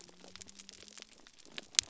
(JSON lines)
{"label": "biophony", "recorder": "SoundTrap 300"}